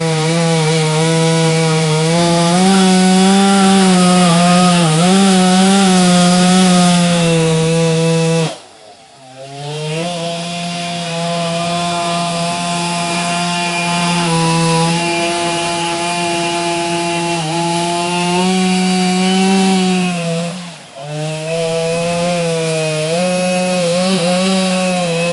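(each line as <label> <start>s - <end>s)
An engine is running loudly. 0.0s - 8.5s
An engine is switched on and off. 7.8s - 11.1s
An engine makes noises with irregular loudness and pitch. 10.0s - 20.1s
An engine is switched on and off. 19.6s - 22.2s
An engine is running with irregular loudness and pitch. 21.7s - 25.3s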